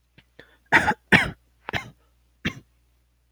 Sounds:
Cough